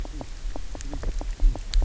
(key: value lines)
label: biophony, knock croak
recorder: SoundTrap 300